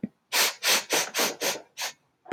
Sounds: Sniff